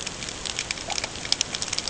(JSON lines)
{"label": "ambient", "recorder": "HydroMoth"}